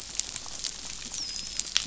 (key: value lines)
label: biophony, dolphin
recorder: SoundTrap 500